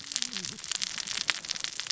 {"label": "biophony, cascading saw", "recorder": "SoundTrap 600 or HydroMoth"}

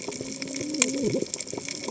{"label": "biophony, cascading saw", "recorder": "HydroMoth"}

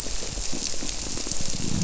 {"label": "biophony", "recorder": "SoundTrap 300"}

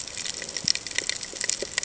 {"label": "ambient", "recorder": "HydroMoth"}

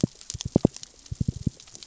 {"label": "biophony, knock", "recorder": "SoundTrap 600 or HydroMoth"}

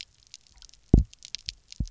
{"label": "biophony, double pulse", "recorder": "SoundTrap 300"}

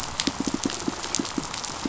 {"label": "biophony, pulse", "recorder": "SoundTrap 500"}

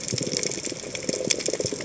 {"label": "biophony, chatter", "recorder": "HydroMoth"}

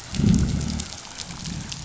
{"label": "biophony, growl", "recorder": "SoundTrap 500"}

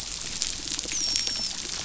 {"label": "biophony, dolphin", "recorder": "SoundTrap 500"}
{"label": "biophony", "recorder": "SoundTrap 500"}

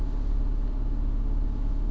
{"label": "anthrophony, boat engine", "recorder": "SoundTrap 300"}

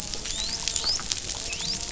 {"label": "biophony, dolphin", "recorder": "SoundTrap 500"}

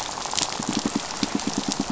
{"label": "biophony, pulse", "recorder": "SoundTrap 500"}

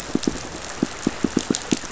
{"label": "biophony, pulse", "recorder": "SoundTrap 500"}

